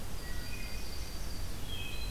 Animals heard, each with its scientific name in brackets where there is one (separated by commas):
Wood Thrush (Hylocichla mustelina), Yellow-rumped Warbler (Setophaga coronata)